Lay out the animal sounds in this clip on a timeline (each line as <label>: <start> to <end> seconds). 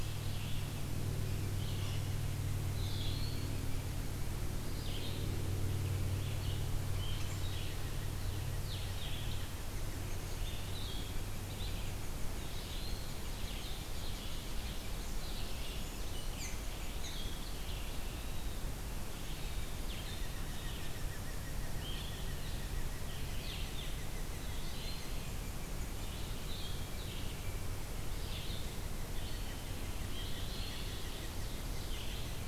unidentified call: 0.0 to 14.3 seconds
Red-eyed Vireo (Vireo olivaceus): 0.0 to 18.7 seconds
Eastern Wood-Pewee (Contopus virens): 2.7 to 3.8 seconds
Eastern Wood-Pewee (Contopus virens): 12.3 to 13.2 seconds
Ovenbird (Seiurus aurocapilla): 13.1 to 15.0 seconds
Brown Creeper (Certhia americana): 15.5 to 17.4 seconds
Red-eyed Vireo (Vireo olivaceus): 19.7 to 32.5 seconds
Blue-headed Vireo (Vireo solitarius): 19.8 to 32.5 seconds
Eastern Wood-Pewee (Contopus virens): 24.3 to 25.4 seconds
Eastern Wood-Pewee (Contopus virens): 30.0 to 31.0 seconds
Ovenbird (Seiurus aurocapilla): 30.3 to 32.3 seconds